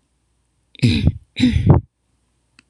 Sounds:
Throat clearing